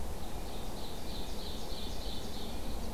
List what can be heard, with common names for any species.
Ovenbird